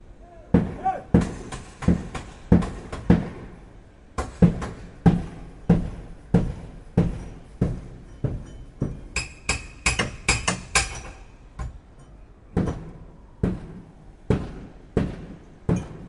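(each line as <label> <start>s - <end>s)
A strong hammering sound echoes. 0.3s - 3.5s
Hammering sound with an echo. 4.0s - 9.0s
A hammering sound on metal with squawking. 9.0s - 11.2s
Hammering sound with an echo. 12.5s - 16.0s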